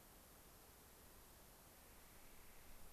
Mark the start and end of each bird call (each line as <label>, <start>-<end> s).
Clark's Nutcracker (Nucifraga columbiana), 1.7-2.9 s